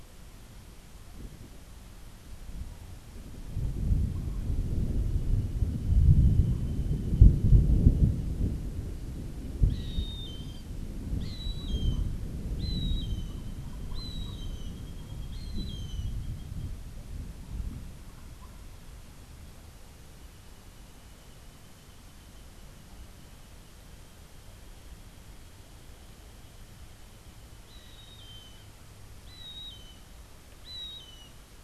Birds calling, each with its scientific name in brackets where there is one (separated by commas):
Gray Hawk (Buteo plagiatus)